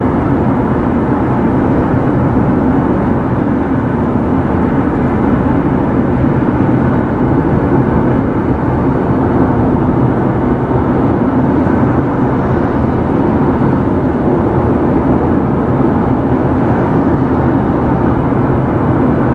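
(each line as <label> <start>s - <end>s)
An engine produces a continuous thrum. 0.0s - 19.3s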